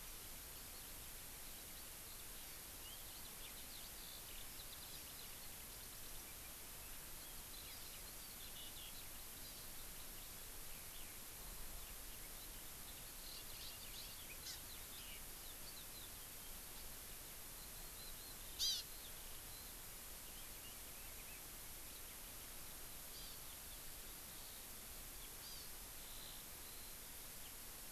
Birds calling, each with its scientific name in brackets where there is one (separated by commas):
Hawaii Amakihi (Chlorodrepanis virens), Eurasian Skylark (Alauda arvensis)